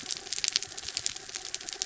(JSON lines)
{"label": "anthrophony, mechanical", "recorder": "SoundTrap 300"}